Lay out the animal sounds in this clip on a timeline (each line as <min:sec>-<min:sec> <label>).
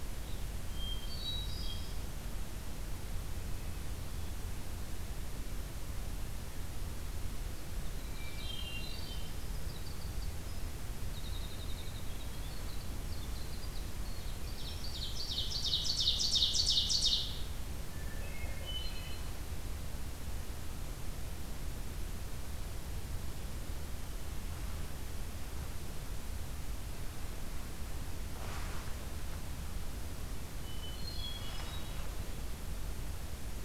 0:00.7-0:02.1 Hermit Thrush (Catharus guttatus)
0:07.3-0:16.0 Winter Wren (Troglodytes hiemalis)
0:07.7-0:09.3 Hermit Thrush (Catharus guttatus)
0:14.1-0:17.6 Ovenbird (Seiurus aurocapilla)
0:17.6-0:19.6 Hermit Thrush (Catharus guttatus)
0:30.3-0:32.2 Hermit Thrush (Catharus guttatus)